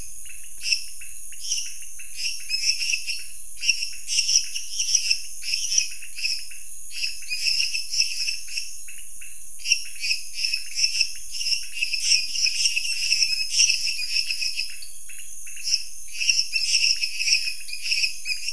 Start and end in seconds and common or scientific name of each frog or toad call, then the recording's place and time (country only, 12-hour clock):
0.6	18.5	lesser tree frog
0.6	18.5	dwarf tree frog
0.6	18.5	pointedbelly frog
Brazil, 9:30pm